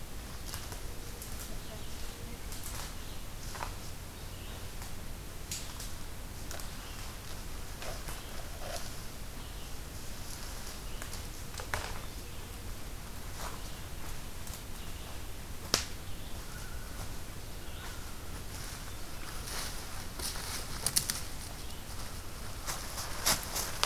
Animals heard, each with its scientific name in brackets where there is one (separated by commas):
Red-eyed Vireo (Vireo olivaceus), Common Loon (Gavia immer)